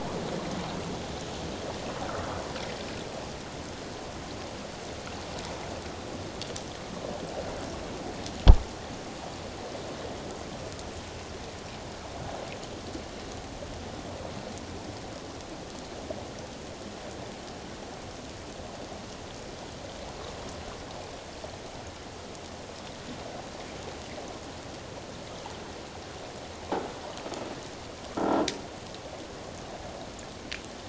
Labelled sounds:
28.1	28.4	croaking sound likely from a nearby submerged object, 1.1 to 1.4 kHz

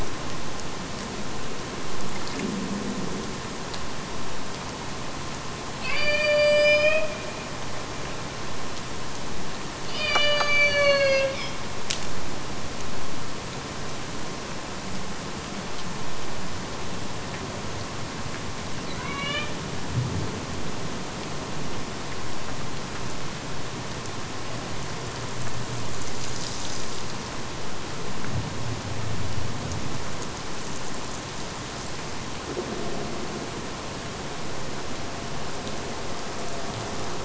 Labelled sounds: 5.8	7.4	killer whale, Bigg's (transient), AT1 transient, 0.49 to 8.0 kHz
9.7	11.7	killer whale, Bigg's (transient), AT1 transient, 0.40 to 8.0 kHz
18.9	19.6	killer whale, Bigg's (transient), AT1 transient, 0.51 to 6.1 kHz

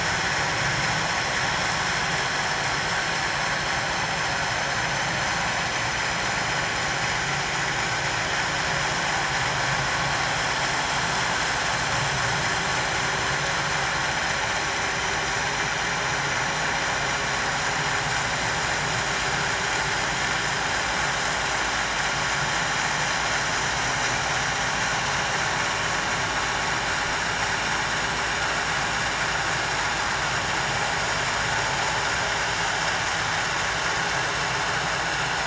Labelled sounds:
7.1	7.4	vessel noise, 6.4 to 6.6 kHz

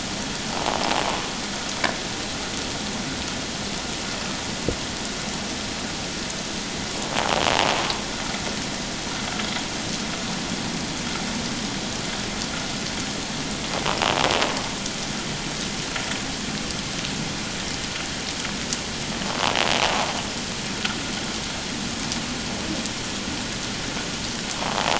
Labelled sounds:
24.6	24.9	invertebrate grinding on or near the hydrophone, 0.78 to 1.2 kHz

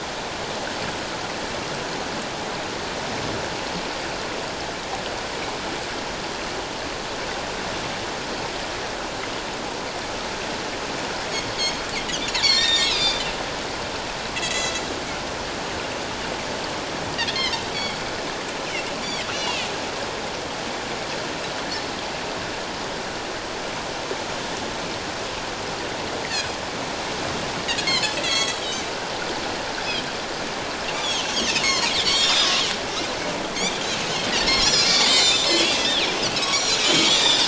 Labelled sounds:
11.5	13.2	Pacific white-sided dolphin, 1.7 to 7.8 kHz
14.4	14.7	Pacific white-sided dolphin, 1.9 to 8.0 kHz
17.3	18.0	Pacific white-sided dolphin, 1.8 to 6.8 kHz
19.3	19.7	Pacific white-sided dolphin, 2.3 to 5.9 kHz
27.8	28.8	Pacific white-sided dolphin, 1.9 to 6.9 kHz
29.8	30.1	Pacific white-sided dolphin, 3.0 to 3.5 kHz
31.0	31.3	Pacific white-sided dolphin, 3.0 to 3.7 kHz
31.6	32.7	Pacific white-sided dolphin, 0.91 to 7.6 kHz
34.5	37.4	Pacific white-sided dolphin, 1.7 to 7.6 kHz

